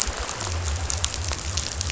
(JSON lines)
{"label": "biophony", "recorder": "SoundTrap 500"}